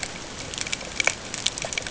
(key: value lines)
label: ambient
recorder: HydroMoth